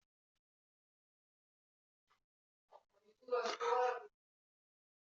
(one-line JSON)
{"expert_labels": [{"quality": "no cough present", "dyspnea": false, "wheezing": false, "stridor": false, "choking": false, "congestion": false, "nothing": false}]}